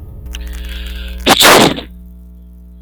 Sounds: Sneeze